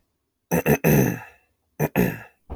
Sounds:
Throat clearing